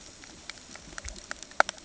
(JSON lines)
{"label": "ambient", "recorder": "HydroMoth"}